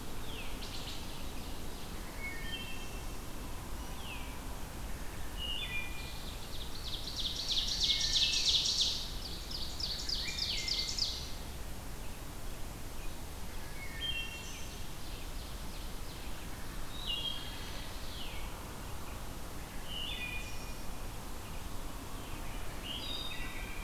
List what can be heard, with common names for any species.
Veery, Wood Thrush, Ovenbird